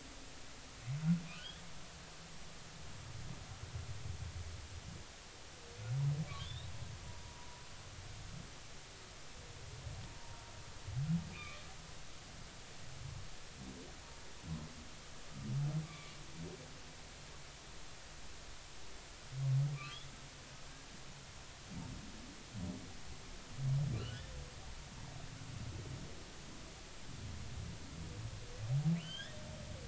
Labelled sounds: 1.3	1.6	humpback whale, 1.4 to 3.6 kHz
6.4	6.7	humpback whale, 2.9 to 4.0 kHz
7.4	7.6	humpback whale, 0.93 to 1.0 kHz
10.1	10.4	humpback whale, 0.90 to 0.99 kHz
11.3	11.6	humpback whale, 1.1 to 2.6 kHz
15.8	16.1	humpback whale, 1.1 to 2.5 kHz
19.7	20.0	humpback whale, 1.1 to 1.2 kHz
24.0	24.2	humpback whale, 1.3 to 3.0 kHz
29.0	29.4	humpback whale, 1.4 to 3.8 kHz

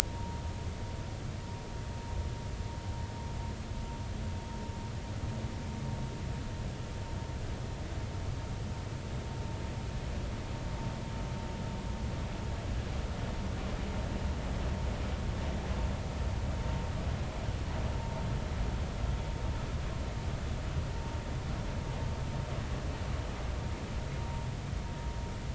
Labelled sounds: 0.1	0.4	vessel noise, 0.90 to 0.99 kHz
24.2	24.5	vessel noise, 0.90 to 0.99 kHz

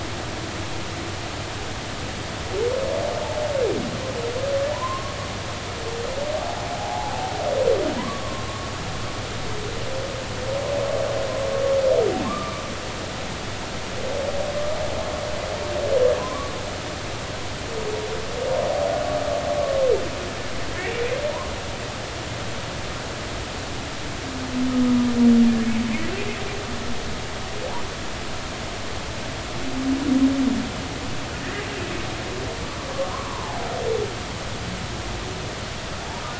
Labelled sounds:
4.7	5.2	humpback whale, 0.86 to 1.2 kHz
6.7	7.2	humpback whale, 0.80 to 0.99 kHz
8.0	8.5	humpback whale, 0.93 to 1.2 kHz
12.2	12.6	humpback whale, 1.0 to 1.2 kHz
16.2	16.5	humpback whale, 0.93 to 1.2 kHz
20.7	21.0	humpback whale, 1.6 to 2.3 kHz
31.4	31.7	humpback whale, 1.7 to 2.1 kHz
33.1	33.6	humpback whale, 0.80 to 1.2 kHz

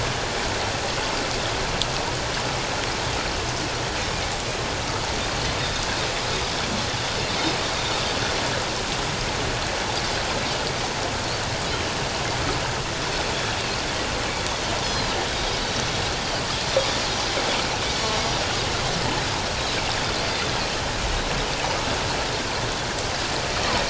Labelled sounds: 14.8	15.1	Pacific white-sided dolphin, 4.0 to 4.4 kHz
17.9	18.1	Pacific white-sided dolphin, 4.3 to 4.6 kHz

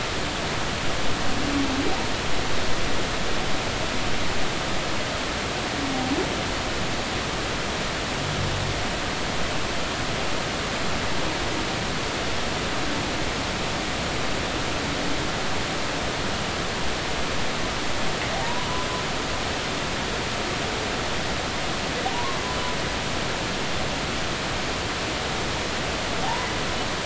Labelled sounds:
18.4	18.7	humpback whale, 0.90 to 1.1 kHz
22.1	22.4	humpback whale, 0.90 to 1.2 kHz
26.2	26.5	humpback whale, 0.80 to 1.1 kHz

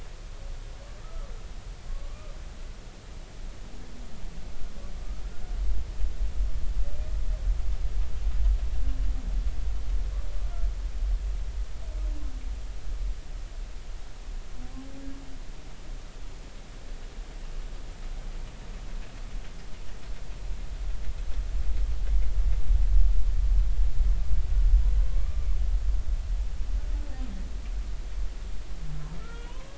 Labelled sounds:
1.0	1.3	humpback whale, 1.1 to 1.4 kHz
1.9	2.4	humpback whale, 1.1 to 1.3 kHz
29.2	29.7	humpback whale, 0.90 to 3.2 kHz

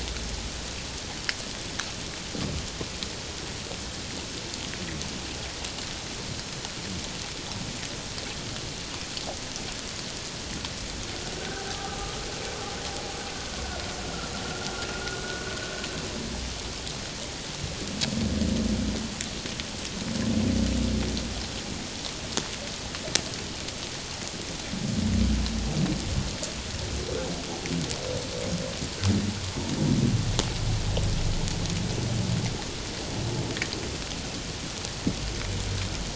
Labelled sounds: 11.4	11.9	humpback whale, 0.78 to 1.6 kHz
14.0	15.2	humpback whale, 1.2 to 1.5 kHz

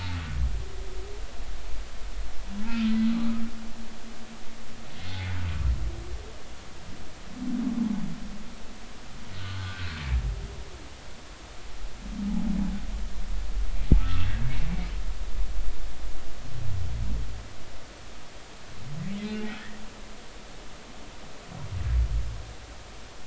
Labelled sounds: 3.1	3.4	humpback whale, 1.1 to 1.3 kHz
9.3	10.0	humpback whale, 1.4 to 1.7 kHz
14.0	14.3	humpback whale, 1.1 to 1.4 kHz

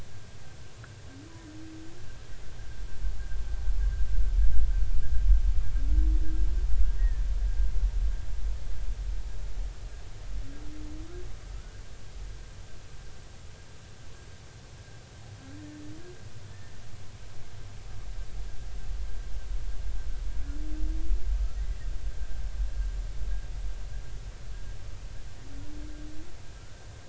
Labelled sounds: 7.0	7.3	humpback whale, 1.7 to 2.0 kHz
16.5	16.7	humpback whale, 1.7 to 1.9 kHz
26.6	26.8	humpback whale, 1.3 to 1.6 kHz

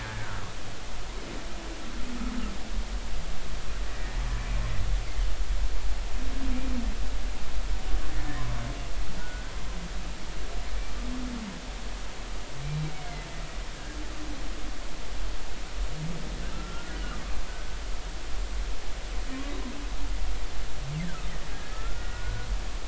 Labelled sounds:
0.0	0.4	humpback whale, 1.3 to 1.8 kHz
9.2	9.5	humpback whale, 1.4 to 1.6 kHz
12.9	13.3	humpback whale, 2.0 to 2.3 kHz
13.7	14.0	humpback whale, 1.5 to 1.7 kHz
16.5	17.0	humpback whale, 1.3 to 1.5 kHz
21.0	21.3	humpback whale, 1.2 to 1.9 kHz
21.5	22.5	humpback whale, 1.2 to 1.8 kHz

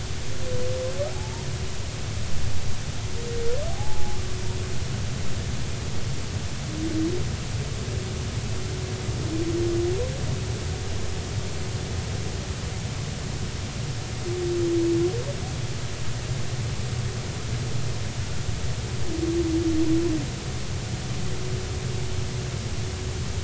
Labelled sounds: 1.1	1.4	humpback whale, 0.80 to 0.99 kHz
3.7	4.2	humpback whale, 0.80 to 0.93 kHz

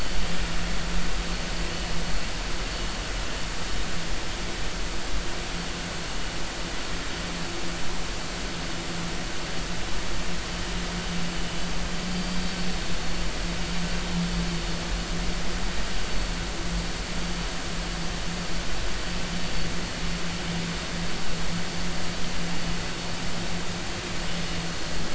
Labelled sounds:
2.1	2.3	vessel noise, 4.3 to 4.4 kHz
12.1	12.4	vessel noise, 4.6 to 4.8 kHz

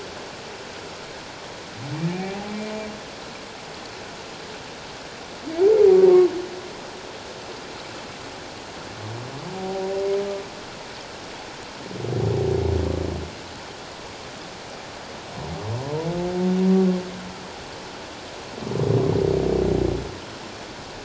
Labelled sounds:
2.2	2.5	humpback whale, 0.78 to 0.88 kHz
9.6	10.0	humpback whale, 0.78 to 0.81 kHz

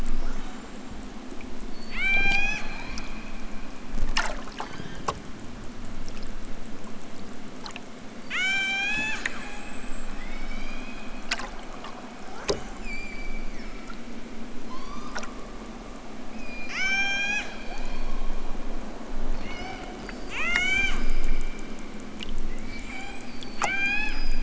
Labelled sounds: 0.0	1.1	killer whale, southern Alaska resident, 0.28 to 7.8 kHz
1.7	3.1	killer whale, southern Alaska resident, 0.46 to 8.0 kHz
4.5	5.1	killer whale, southern Alaska resident, 1.2 to 7.3 kHz
8.3	11.3	killer whale, southern Alaska resident, 0.41 to 8.0 kHz
12.3	14.0	killer whale, southern Alaska resident, 0.46 to 7.9 kHz
14.6	15.3	killer whale, southern Alaska resident, 0.60 to 6.7 kHz
16.3	18.2	killer whale, southern Alaska resident, 0.64 to 8.0 kHz
19.3	21.1	killer whale, southern Alaska resident, 0.78 to 8.0 kHz
22.4	24.4	killer whale, southern Alaska resident, 0.46 to 8.0 kHz

